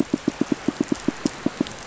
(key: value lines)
label: biophony, pulse
recorder: SoundTrap 500